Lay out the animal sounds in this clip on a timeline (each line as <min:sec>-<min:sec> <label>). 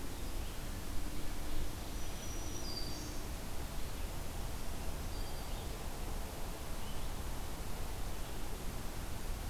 0:01.8-0:03.6 Black-throated Green Warbler (Setophaga virens)
0:04.4-0:05.7 Black-throated Green Warbler (Setophaga virens)